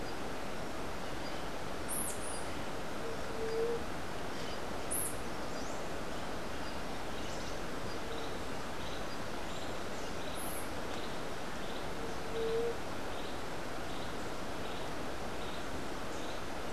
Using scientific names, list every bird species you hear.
Melozone leucotis